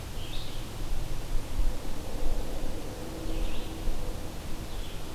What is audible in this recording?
Red-eyed Vireo